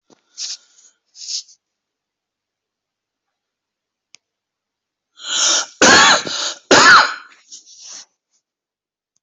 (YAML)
expert_labels:
- quality: good
  cough_type: dry
  dyspnea: false
  wheezing: false
  stridor: false
  choking: false
  congestion: false
  nothing: true
  diagnosis: lower respiratory tract infection
  severity: mild
gender: male
respiratory_condition: false
fever_muscle_pain: false
status: healthy